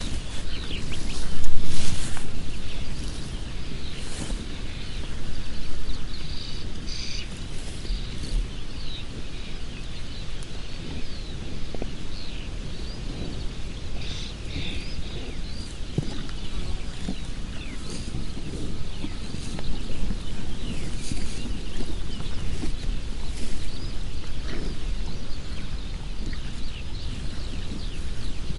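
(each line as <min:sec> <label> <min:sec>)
0:00.0 Birds chirp in the distance with a light wind. 0:28.6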